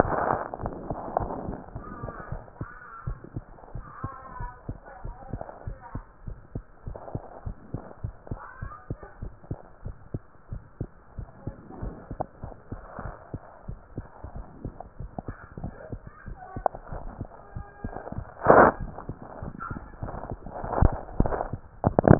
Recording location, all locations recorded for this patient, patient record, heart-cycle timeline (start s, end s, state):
tricuspid valve (TV)
aortic valve (AV)+pulmonary valve (PV)+tricuspid valve (TV)+mitral valve (MV)
#Age: Child
#Sex: Female
#Height: 104.0 cm
#Weight: 20.8 kg
#Pregnancy status: False
#Murmur: Absent
#Murmur locations: nan
#Most audible location: nan
#Systolic murmur timing: nan
#Systolic murmur shape: nan
#Systolic murmur grading: nan
#Systolic murmur pitch: nan
#Systolic murmur quality: nan
#Diastolic murmur timing: nan
#Diastolic murmur shape: nan
#Diastolic murmur grading: nan
#Diastolic murmur pitch: nan
#Diastolic murmur quality: nan
#Outcome: Normal
#Campaign: 2015 screening campaign
0.00	2.08	unannotated
2.08	2.10	S2
2.10	2.30	diastole
2.30	2.41	S1
2.41	2.57	systole
2.57	2.70	S2
2.70	3.02	diastole
3.02	3.18	S1
3.18	3.34	systole
3.34	3.44	S2
3.44	3.72	diastole
3.72	3.86	S1
3.86	4.00	systole
4.00	4.12	S2
4.12	4.38	diastole
4.38	4.52	S1
4.52	4.66	systole
4.66	4.80	S2
4.80	5.03	diastole
5.03	5.16	S1
5.16	5.30	systole
5.30	5.40	S2
5.40	5.64	diastole
5.64	5.80	S1
5.80	5.91	systole
5.91	6.06	S2
6.06	6.24	diastole
6.24	6.36	S1
6.36	6.52	systole
6.52	6.62	S2
6.62	6.84	diastole
6.84	7.00	S1
7.00	7.12	systole
7.12	7.22	S2
7.22	7.43	diastole
7.43	7.56	S1
7.56	7.70	systole
7.70	7.80	S2
7.80	8.00	diastole
8.00	8.14	S1
8.14	8.29	systole
8.29	8.40	S2
8.40	8.59	diastole
8.59	8.72	S1
8.72	8.88	systole
8.88	8.98	S2
8.98	9.19	diastole
9.19	9.34	S1
9.34	9.48	systole
9.48	9.58	S2
9.58	9.82	diastole
9.82	9.94	S1
9.94	10.10	systole
10.10	10.22	S2
10.22	10.50	diastole
10.50	10.62	S1
10.62	10.78	systole
10.78	10.88	S2
10.88	11.14	diastole
11.14	11.28	S1
11.28	11.44	systole
11.44	11.56	S2
11.56	11.80	diastole
11.80	11.94	S1
11.94	12.08	systole
12.08	12.18	S2
12.18	12.41	diastole
12.41	12.56	S1
12.56	12.70	systole
12.70	12.80	S2
12.80	13.04	diastole
13.04	13.14	S1
13.14	13.30	systole
13.30	13.42	S2
13.42	13.65	diastole
13.65	13.78	S1
13.78	13.95	systole
13.95	14.06	S2
14.06	14.34	diastole
14.34	14.46	S1
14.46	14.63	systole
14.63	14.76	S2
14.76	14.97	diastole
14.97	15.12	S1
15.12	15.26	systole
15.26	15.36	S2
15.36	15.60	diastole
15.60	15.76	S1
15.76	15.90	systole
15.90	16.04	S2
16.04	16.27	diastole
16.27	16.38	S1
16.38	22.19	unannotated